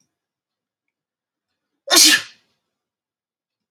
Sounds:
Sneeze